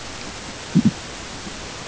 {"label": "ambient", "recorder": "HydroMoth"}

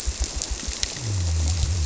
{"label": "biophony", "recorder": "SoundTrap 300"}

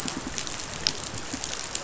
{"label": "biophony, pulse", "recorder": "SoundTrap 500"}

